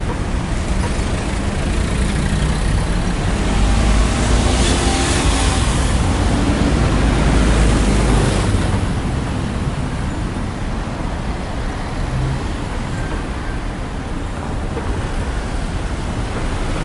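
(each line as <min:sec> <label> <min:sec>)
0:00.0 Traffic noise with car engines, motorbikes, and distant street activity. 0:16.8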